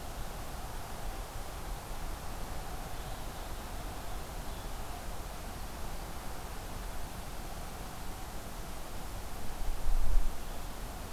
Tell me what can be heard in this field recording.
forest ambience